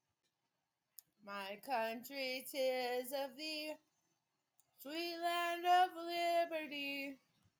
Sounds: Sigh